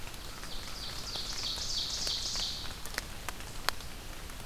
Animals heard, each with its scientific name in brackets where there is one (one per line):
Ovenbird (Seiurus aurocapilla)